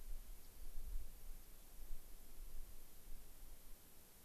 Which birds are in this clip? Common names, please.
Rock Wren